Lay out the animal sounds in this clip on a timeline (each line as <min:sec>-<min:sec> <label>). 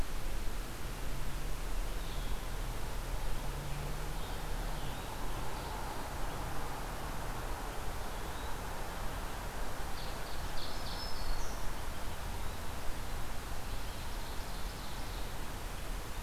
0:00.0-0:08.7 Blue-headed Vireo (Vireo solitarius)
0:09.7-0:11.2 Ovenbird (Seiurus aurocapilla)
0:10.5-0:11.8 Black-throated Green Warbler (Setophaga virens)
0:11.9-0:16.2 Blue-headed Vireo (Vireo solitarius)
0:13.7-0:15.4 Ovenbird (Seiurus aurocapilla)